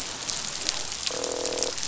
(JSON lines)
{"label": "biophony, croak", "recorder": "SoundTrap 500"}